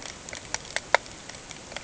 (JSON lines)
{"label": "ambient", "recorder": "HydroMoth"}